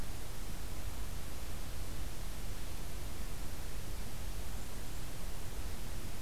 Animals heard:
forest ambience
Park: Acadia National Park